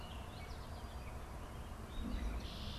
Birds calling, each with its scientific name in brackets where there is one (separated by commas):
Red-winged Blackbird (Agelaius phoeniceus), Baltimore Oriole (Icterus galbula)